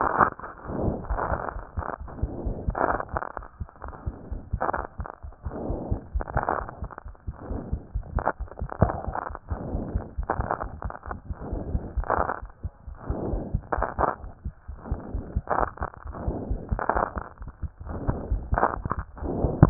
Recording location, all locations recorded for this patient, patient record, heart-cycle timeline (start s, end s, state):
pulmonary valve (PV)
aortic valve (AV)+pulmonary valve (PV)+tricuspid valve (TV)+mitral valve (MV)
#Age: Adolescent
#Sex: Male
#Height: nan
#Weight: nan
#Pregnancy status: False
#Murmur: Absent
#Murmur locations: nan
#Most audible location: nan
#Systolic murmur timing: nan
#Systolic murmur shape: nan
#Systolic murmur grading: nan
#Systolic murmur pitch: nan
#Systolic murmur quality: nan
#Diastolic murmur timing: nan
#Diastolic murmur shape: nan
#Diastolic murmur grading: nan
#Diastolic murmur pitch: nan
#Diastolic murmur quality: nan
#Outcome: Normal
#Campaign: 2015 screening campaign
0.00	12.41	unannotated
12.41	12.49	S1
12.49	12.62	systole
12.62	12.70	S2
12.70	12.86	diastole
12.86	12.95	S1
12.95	13.08	systole
13.08	13.14	S2
13.14	13.32	diastole
13.32	13.39	S1
13.39	13.52	systole
13.52	13.61	S2
13.61	13.75	diastole
13.75	13.83	S1
13.83	14.22	unannotated
14.22	14.32	S1
14.32	14.43	systole
14.43	14.51	S2
14.51	14.66	diastole
14.66	14.76	S1
14.76	14.89	systole
14.89	14.94	S2
14.94	15.12	diastole
15.12	15.21	S1
15.21	15.33	systole
15.33	15.42	S2
15.42	16.04	unannotated
16.04	16.12	S1
16.12	16.25	systole
16.25	16.32	S2
16.32	16.48	diastole
16.48	16.56	S1
16.56	16.70	systole
16.70	16.77	S2
16.77	19.70	unannotated